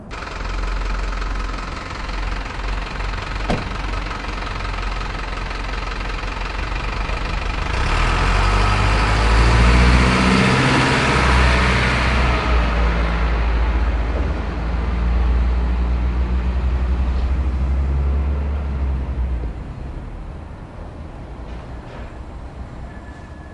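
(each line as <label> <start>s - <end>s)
An old truck engine is running loudly outdoors. 0.0s - 7.7s
A person slams a car door loudly and abruptly. 3.5s - 3.6s
An old truck accelerates with a loud engine sound that gradually fades as it drives away. 7.8s - 23.5s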